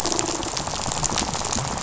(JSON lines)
{"label": "biophony, rattle", "recorder": "SoundTrap 500"}